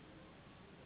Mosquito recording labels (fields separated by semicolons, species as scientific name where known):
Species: Anopheles gambiae s.s.; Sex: female; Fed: unfed; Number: one; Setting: insect culture